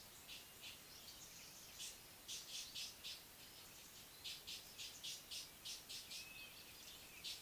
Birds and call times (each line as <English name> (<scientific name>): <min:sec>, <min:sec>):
Blue-naped Mousebird (Urocolius macrourus): 0:06.3